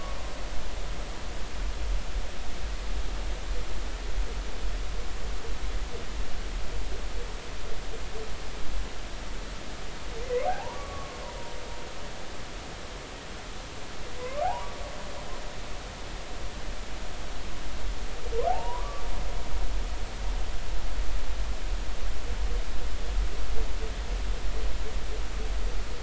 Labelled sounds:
10.2	11.2	humpback whale, 0.80 to 2.3 kHz
14.2	14.7	humpback whale, 0.80 to 1.2 kHz
18.5	19.0	humpback whale, 0.80 to 1.3 kHz

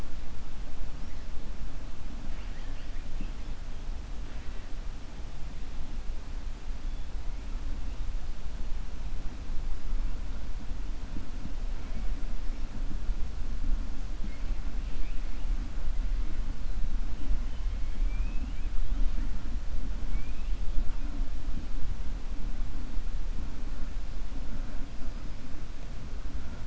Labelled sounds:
17.8	18.7	killer whale, 2.2 to 3.3 kHz
20.0	20.5	killer whale, 2.2 to 3.6 kHz

